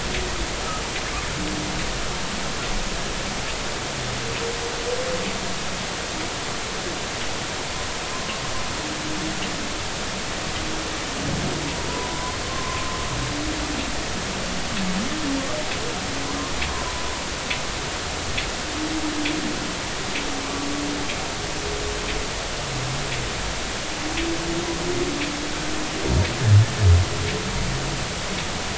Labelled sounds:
11.9	12.9	humpback whale, 0.93 to 1.1 kHz

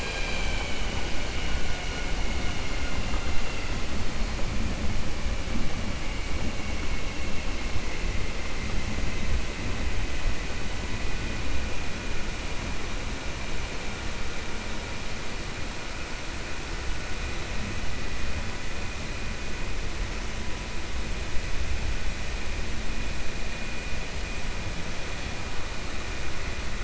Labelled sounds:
2.3	2.9	vessel noise, 1.4 to 2.9 kHz

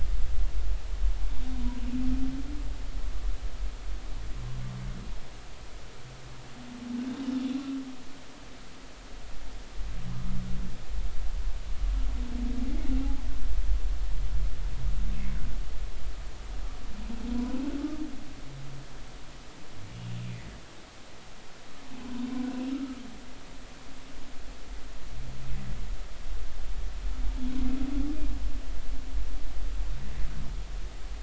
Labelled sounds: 22.7	23.0	humpback whale, 1.2 to 1.4 kHz

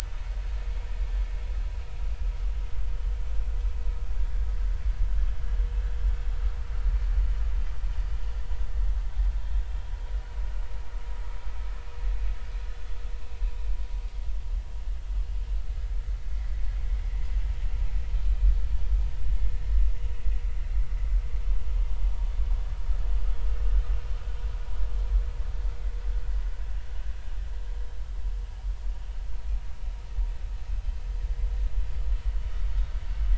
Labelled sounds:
18.3	18.5	vessel noise, 2.4 to 2.5 kHz

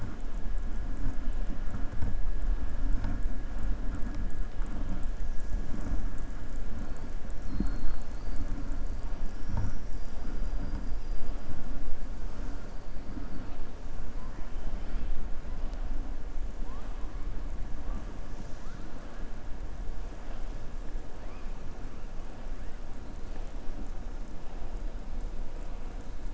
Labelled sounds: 7.3	8.4	killer whale, southern resident, 3.7 to 5.4 kHz

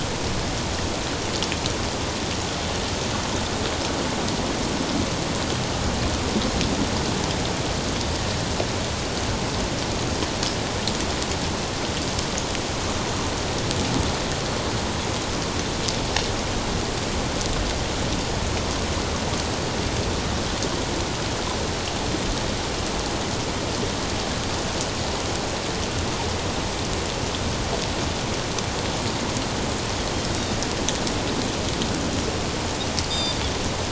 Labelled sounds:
33.1	33.4	Pacific white-sided dolphin, 3.5 to 7.4 kHz

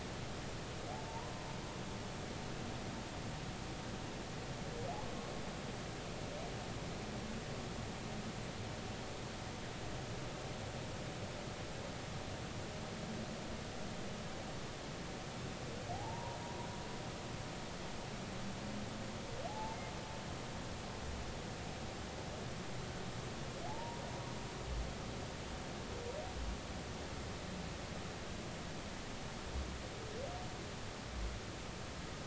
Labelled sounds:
0.9	1.3	humpback whale, 0.80 to 1.1 kHz
15.9	16.7	humpback whale, 0.80 to 1.1 kHz
19.5	19.8	humpback whale, 0.80 to 0.96 kHz
23.7	24.0	humpback whale, 0.80 to 0.99 kHz

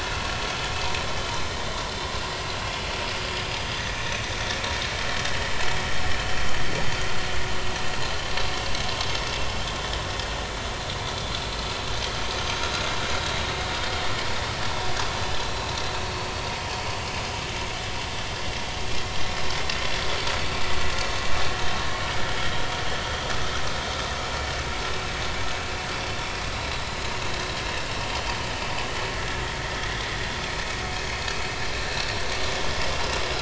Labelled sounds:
4.0	4.3	vessel noise, 6.0 to 6.3 kHz
5.2	5.5	vessel noise, 2.9 to 3.1 kHz
29.8	30.1	vessel noise, 3.2 to 3.6 kHz

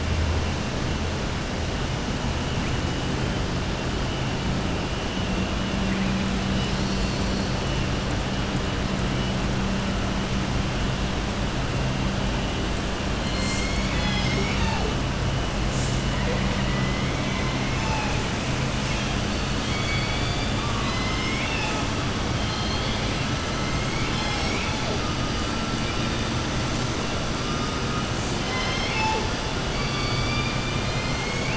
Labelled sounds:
16.5	17.0	killer whale, southern resident, 1.2 to 3.0 kHz
19.6	21.8	killer whale, southern resident, 0.88 to 5.3 kHz
22.4	23.2	killer whale, southern resident, 3.1 to 4.6 kHz
28.4	29.3	killer whale, southern resident, 0.47 to 7.1 kHz

